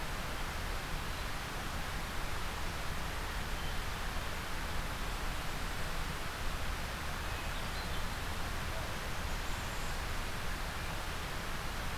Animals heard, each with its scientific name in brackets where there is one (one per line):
Hermit Thrush (Catharus guttatus)